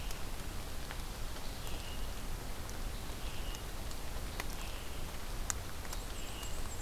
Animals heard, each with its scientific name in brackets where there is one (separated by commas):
Black-and-white Warbler (Mniotilta varia), Scarlet Tanager (Piranga olivacea)